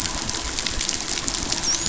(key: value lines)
label: biophony, dolphin
recorder: SoundTrap 500